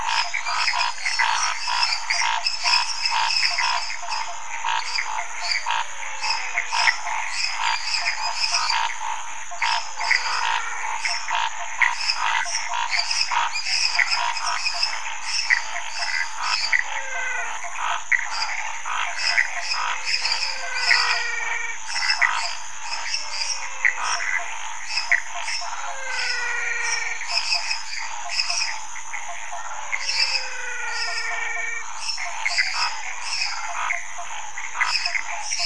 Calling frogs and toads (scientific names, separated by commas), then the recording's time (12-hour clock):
Dendropsophus minutus, Physalaemus nattereri, Pithecopus azureus, Scinax fuscovarius, Elachistocleis matogrosso, Physalaemus albonotatus, Phyllomedusa sauvagii
11:15pm